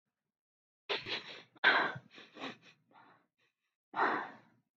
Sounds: Sniff